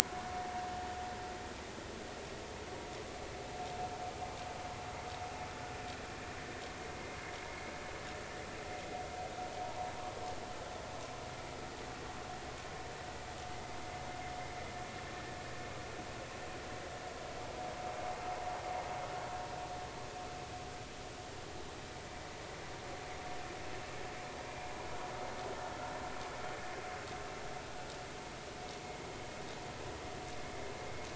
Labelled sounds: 9.6	9.9	vessel noise, 0.83 to 1.1 kHz

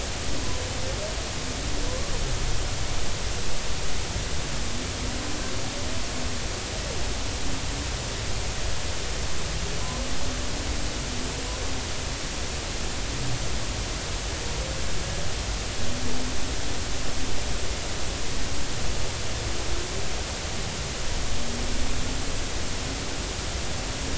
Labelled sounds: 1.9	2.1	humpback whale, 0.96 to 1.2 kHz

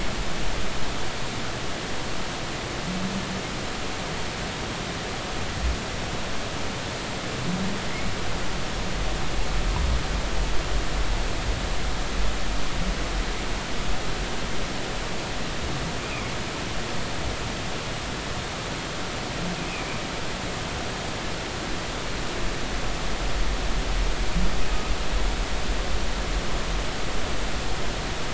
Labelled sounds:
19.7	20.0	humpback whale, 2.2 to 2.7 kHz

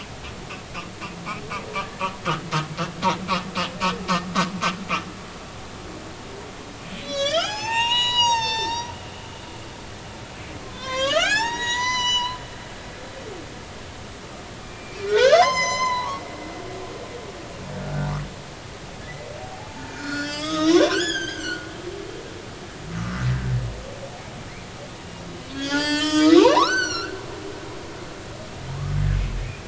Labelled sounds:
1.8	2.0	humpback whale, 1.5 to 1.8 kHz
7.0	8.9	humpback whale, 0.80 to 8.0 kHz
10.6	12.4	humpback whale, 0.80 to 7.9 kHz
14.6	16.2	humpback whale, 0.80 to 8.0 kHz
17.8	18.1	humpback whale, 1.4 to 1.6 kHz
19.9	21.7	humpback whale, 0.96 to 7.0 kHz
22.9	23.2	humpback whale, 1.0 to 1.3 kHz
25.5	27.2	humpback whale, 0.80 to 7.7 kHz

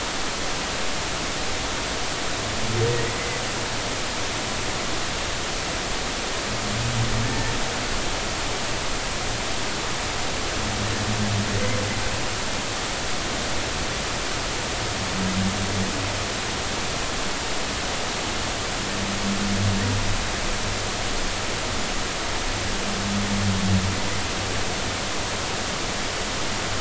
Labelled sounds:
3.1	3.4	humpback whale, 1.9 to 2.1 kHz
7.2	7.5	humpback whale, 1.6 to 1.9 kHz

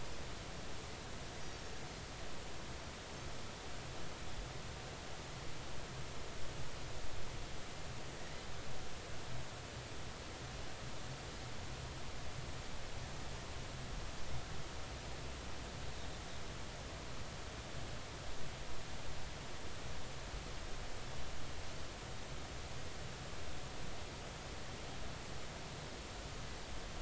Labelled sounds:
1.4	1.7	Pacific white-sided dolphin, 5.4 to 5.9 kHz

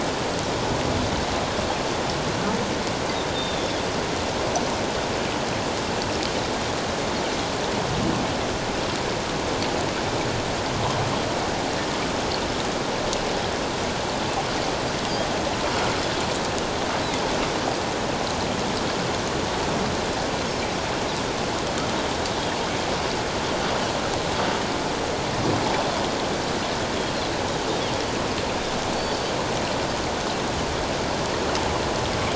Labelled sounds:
3.3	3.7	Pacific white-sided dolphin, 3.4 to 3.7 kHz

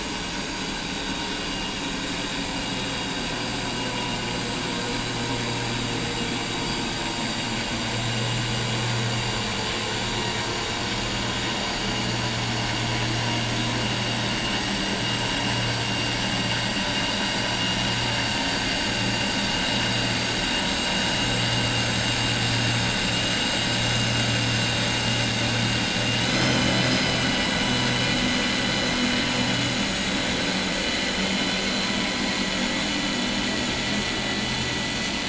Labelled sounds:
26.7	27.6	vessel noise, 2.9 to 5.1 kHz

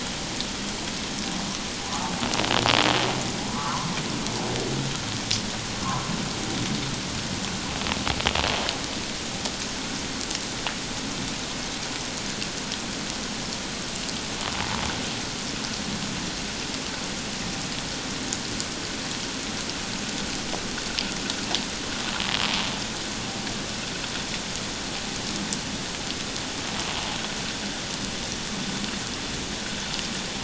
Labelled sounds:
3.5	3.9	humpback whale, 0.94 to 1.4 kHz
5.8	6.1	humpback whale, 0.94 to 1.2 kHz

